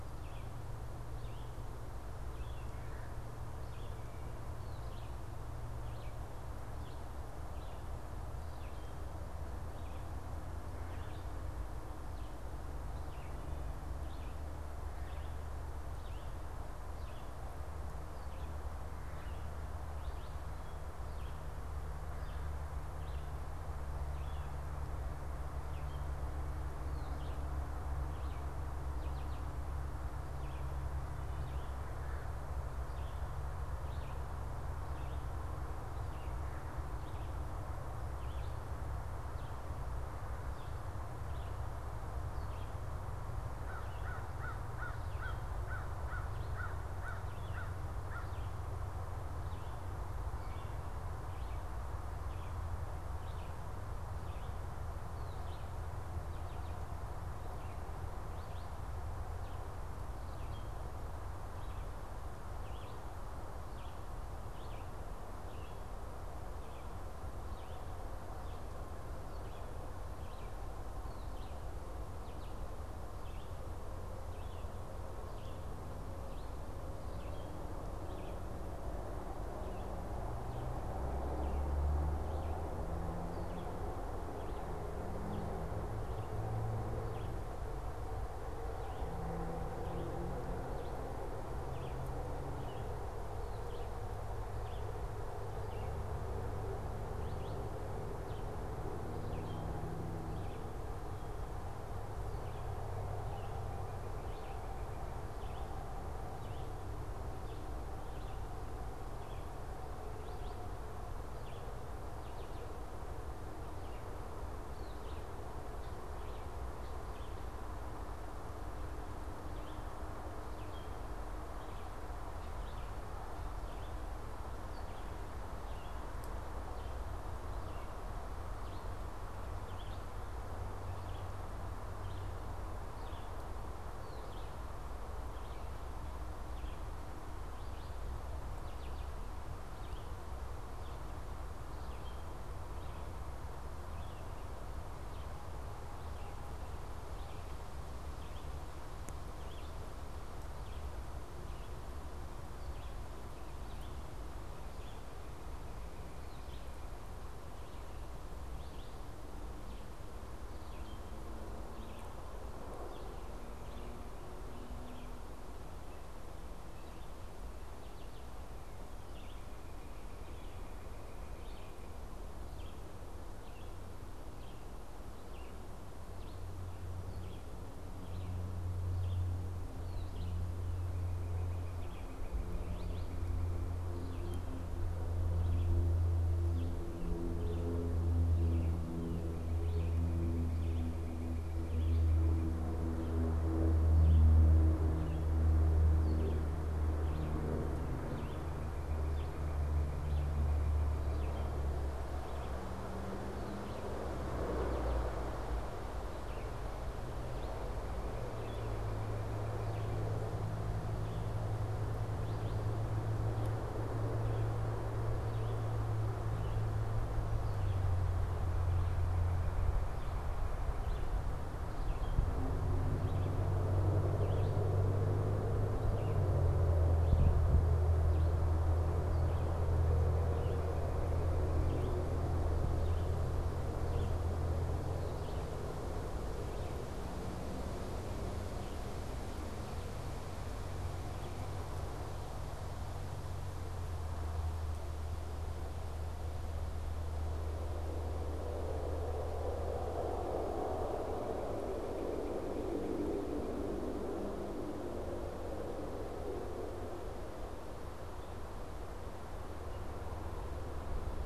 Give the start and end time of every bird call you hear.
[0.00, 6.32] Red-eyed Vireo (Vireo olivaceus)
[6.62, 124.02] Red-eyed Vireo (Vireo olivaceus)
[43.42, 48.32] American Crow (Corvus brachyrhynchos)
[124.42, 180.52] Red-eyed Vireo (Vireo olivaceus)
[181.62, 183.72] Northern Cardinal (Cardinalis cardinalis)
[182.52, 241.52] Red-eyed Vireo (Vireo olivaceus)
[188.82, 192.62] Northern Cardinal (Cardinalis cardinalis)
[197.72, 201.62] Northern Cardinal (Cardinalis cardinalis)
[250.62, 253.52] Northern Cardinal (Cardinalis cardinalis)

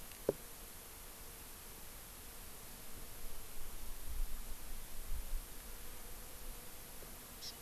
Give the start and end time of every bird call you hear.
[7.41, 7.51] Hawaii Amakihi (Chlorodrepanis virens)

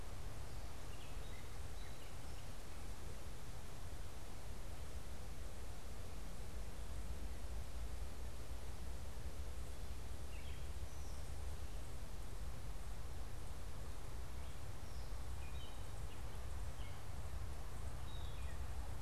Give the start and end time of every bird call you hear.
[0.00, 3.04] Gray Catbird (Dumetella carolinensis)
[10.13, 18.93] Gray Catbird (Dumetella carolinensis)

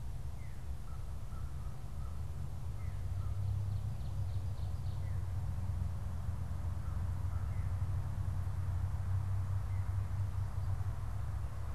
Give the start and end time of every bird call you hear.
[0.22, 0.72] Veery (Catharus fuscescens)
[0.62, 3.42] American Crow (Corvus brachyrhynchos)
[2.72, 3.02] Veery (Catharus fuscescens)
[4.82, 5.32] Veery (Catharus fuscescens)
[6.62, 7.62] American Crow (Corvus brachyrhynchos)
[7.42, 7.82] Veery (Catharus fuscescens)
[9.52, 10.02] Veery (Catharus fuscescens)

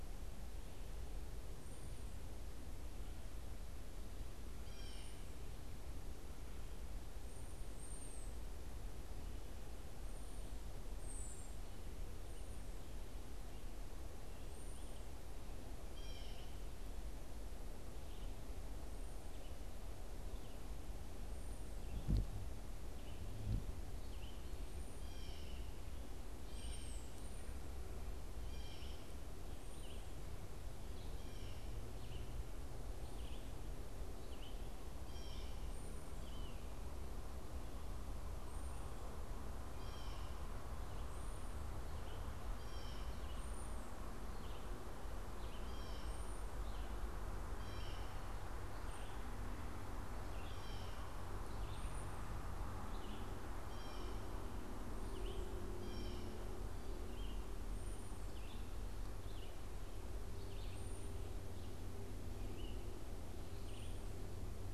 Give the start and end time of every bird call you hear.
[0.00, 49.16] American Robin (Turdus migratorius)
[4.46, 5.46] Blue Jay (Cyanocitta cristata)
[11.76, 49.26] Red-eyed Vireo (Vireo olivaceus)
[15.66, 16.76] Blue Jay (Cyanocitta cristata)
[24.86, 29.36] Blue Jay (Cyanocitta cristata)
[34.86, 35.66] Blue Jay (Cyanocitta cristata)
[39.46, 48.56] Blue Jay (Cyanocitta cristata)
[49.96, 64.73] Red-eyed Vireo (Vireo olivaceus)
[50.06, 56.36] Blue Jay (Cyanocitta cristata)
[51.56, 64.73] unidentified bird

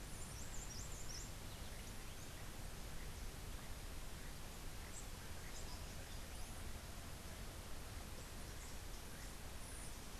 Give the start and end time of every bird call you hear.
[0.00, 1.40] Cabanis's Wren (Cantorchilus modestus)

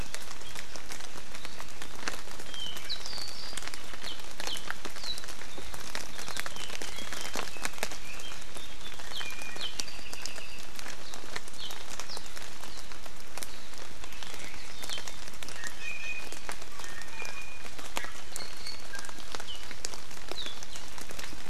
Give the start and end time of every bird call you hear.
[2.43, 4.13] Apapane (Himatione sanguinea)
[4.43, 4.63] Apapane (Himatione sanguinea)
[4.93, 5.23] Apapane (Himatione sanguinea)
[6.53, 8.33] Red-billed Leiothrix (Leiothrix lutea)
[9.13, 9.23] Apapane (Himatione sanguinea)
[9.13, 9.73] Iiwi (Drepanis coccinea)
[9.53, 10.63] Apapane (Himatione sanguinea)
[11.53, 11.73] Apapane (Himatione sanguinea)
[12.03, 12.13] Apapane (Himatione sanguinea)
[14.93, 15.03] Apapane (Himatione sanguinea)
[15.53, 16.33] Iiwi (Drepanis coccinea)
[16.73, 19.23] Iiwi (Drepanis coccinea)
[19.43, 19.63] Apapane (Himatione sanguinea)
[20.33, 20.53] Apapane (Himatione sanguinea)

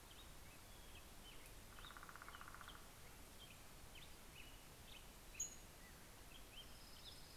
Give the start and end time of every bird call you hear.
[1.30, 3.30] Northern Flicker (Colaptes auratus)
[2.10, 7.36] Black-headed Grosbeak (Pheucticus melanocephalus)
[4.40, 6.30] Pacific-slope Flycatcher (Empidonax difficilis)
[6.40, 7.36] Orange-crowned Warbler (Leiothlypis celata)

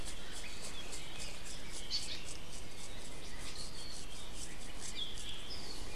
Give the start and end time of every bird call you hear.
[1.80, 2.30] Hawaii Elepaio (Chasiempis sandwichensis)
[4.90, 5.20] Apapane (Himatione sanguinea)

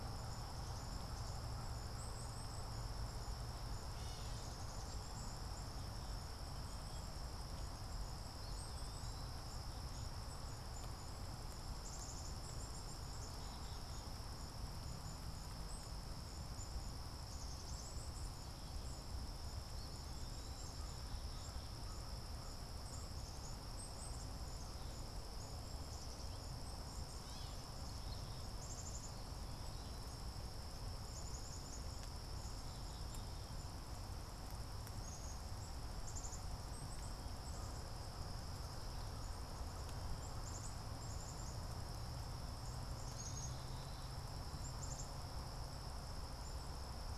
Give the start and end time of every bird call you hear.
[0.00, 47.17] Black-capped Chickadee (Poecile atricapillus)
[3.82, 4.52] Gray Catbird (Dumetella carolinensis)
[27.12, 27.72] Gray Catbird (Dumetella carolinensis)

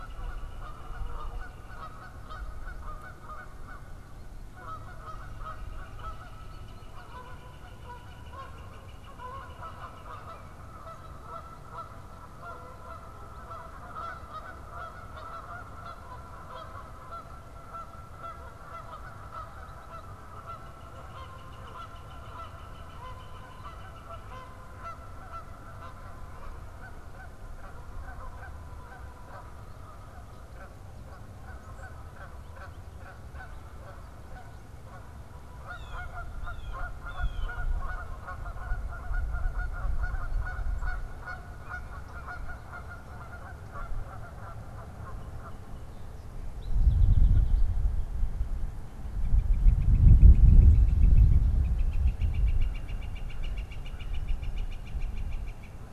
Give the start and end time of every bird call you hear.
[0.00, 10.68] Northern Flicker (Colaptes auratus)
[0.00, 45.78] Canada Goose (Branta canadensis)
[20.08, 24.88] Northern Flicker (Colaptes auratus)
[35.48, 37.78] Blue Jay (Cyanocitta cristata)
[46.38, 47.88] unidentified bird
[48.98, 55.88] Northern Flicker (Colaptes auratus)

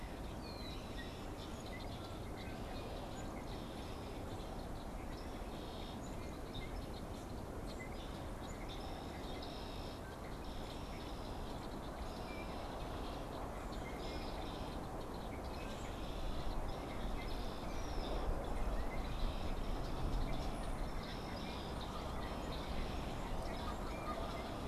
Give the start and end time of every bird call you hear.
[0.00, 24.67] Red-winged Blackbird (Agelaius phoeniceus)
[20.37, 20.87] Brown-headed Cowbird (Molothrus ater)
[23.57, 24.67] Canada Goose (Branta canadensis)

